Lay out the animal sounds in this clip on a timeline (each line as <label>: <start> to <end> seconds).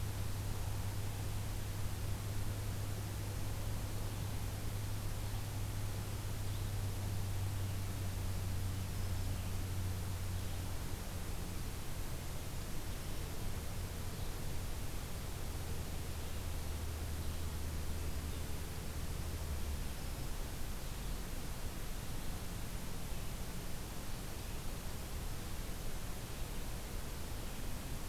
Red-eyed Vireo (Vireo olivaceus): 5.1 to 28.1 seconds
Black-throated Green Warbler (Setophaga virens): 8.9 to 9.4 seconds